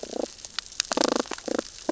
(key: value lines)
label: biophony, damselfish
recorder: SoundTrap 600 or HydroMoth